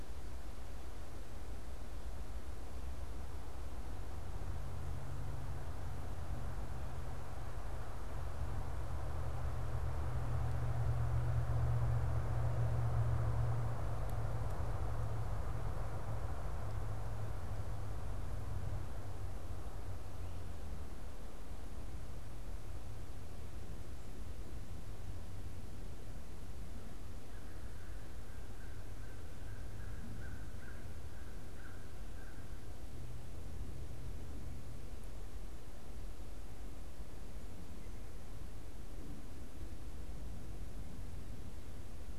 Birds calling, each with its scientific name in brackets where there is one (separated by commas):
American Crow (Corvus brachyrhynchos)